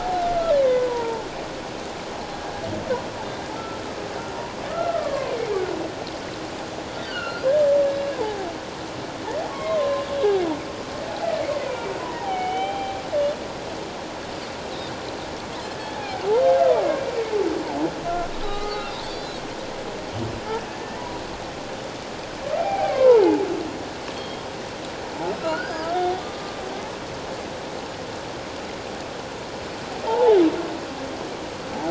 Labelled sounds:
3.6	3.8	humpback whale, 1.2 to 1.4 kHz
4.7	5.3	humpback whale, 1.1 to 1.8 kHz
7.0	7.5	humpback whale, 1.3 to 4.7 kHz
7.9	8.5	humpback whale, 0.78 to 4.0 kHz
9.5	10.0	humpback whale, 1.0 to 1.2 kHz
11.6	12.9	humpback whale, 0.78 to 3.2 kHz
15.8	16.2	humpback whale, 0.78 to 3.5 kHz
17.0	17.3	humpback whale, 2.2 to 2.4 kHz
18.4	19.4	humpback whale, 1.2 to 4.3 kHz
22.6	23.5	humpback whale, 0.78 to 2.6 kHz
24.1	24.4	humpback whale, 3.2 to 3.3 kHz
25.4	26.6	humpback whale, 1.2 to 5.1 kHz
30.1	30.4	humpback whale, 0.78 to 1.0 kHz

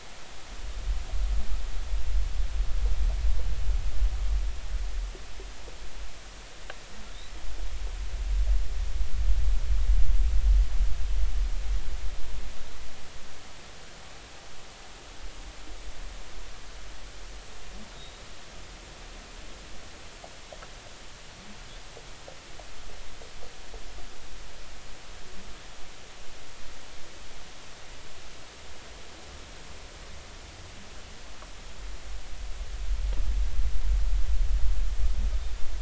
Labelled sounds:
18.9	19.2	humpback whale, 3.7 to 3.8 kHz

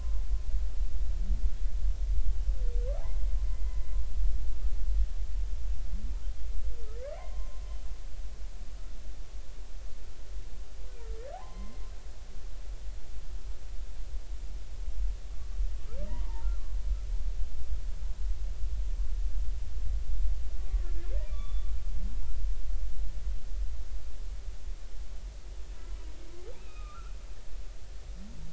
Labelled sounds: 3.4	3.8	humpback whale, 2.0 to 2.1 kHz
7.2	7.6	humpback whale, 0.93 to 1.1 kHz
10.9	11.8	humpback whale, 0.80 to 2.1 kHz
16.0	16.8	humpback whale, 0.80 to 1.4 kHz
21.2	21.7	humpback whale, 1.1 to 3.6 kHz
26.5	27.2	humpback whale, 1.1 to 3.8 kHz

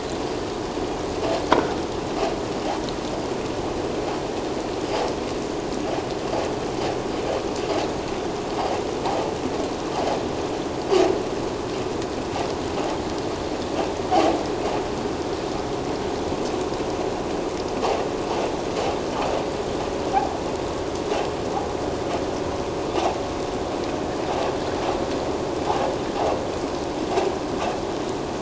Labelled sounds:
1.5	1.8	vessel noise, 1.3 to 1.7 kHz

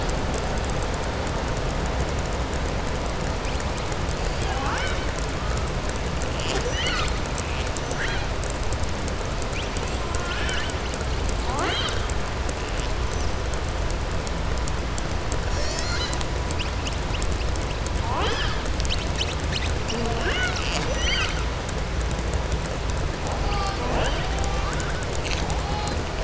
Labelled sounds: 10.1	10.7	killer whale, southern resident, 1.1 to 4.1 kHz

